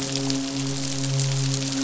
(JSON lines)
{"label": "biophony, midshipman", "recorder": "SoundTrap 500"}